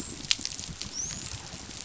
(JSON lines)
{"label": "biophony, dolphin", "recorder": "SoundTrap 500"}